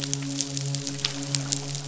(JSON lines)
{"label": "biophony, midshipman", "recorder": "SoundTrap 500"}